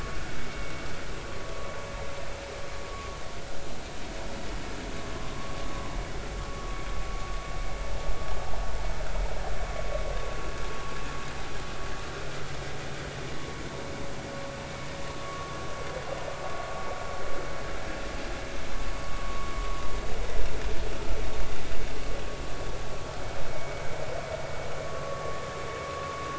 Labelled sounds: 5.3	5.6	vessel noise, 0.96 to 1.2 kHz
23.5	23.8	vessel noise, 2.1 to 2.3 kHz
24.8	25.4	vessel noise, 1.1 to 1.2 kHz

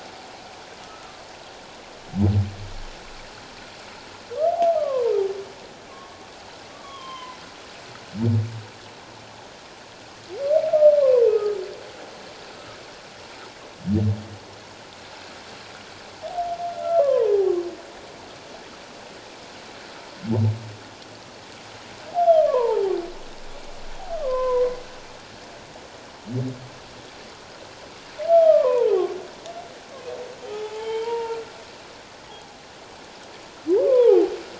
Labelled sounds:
0.8	1.2	humpback whale, 1.2 to 1.4 kHz
4.8	5.1	humpback whale, 0.88 to 1.3 kHz
6.7	7.4	humpback whale, 0.94 to 3.4 kHz
11.0	11.6	humpback whale, 0.91 to 1.3 kHz
16.7	17.5	humpback whale, 0.78 to 1.4 kHz
22.4	22.9	humpback whale, 0.78 to 1.2 kHz
24.2	24.8	humpback whale, 0.91 to 2.2 kHz
28.3	29.1	humpback whale, 0.78 to 1.4 kHz
30.5	31.4	humpback whale, 0.81 to 3.2 kHz
33.7	34.2	humpback whale, 0.78 to 3.5 kHz

